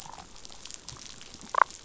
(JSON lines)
{"label": "biophony, damselfish", "recorder": "SoundTrap 500"}